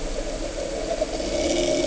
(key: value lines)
label: anthrophony, boat engine
recorder: HydroMoth